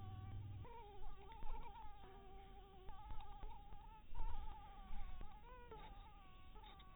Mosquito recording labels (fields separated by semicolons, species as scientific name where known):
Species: Anopheles maculatus; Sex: female; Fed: blood-fed; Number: one; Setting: cup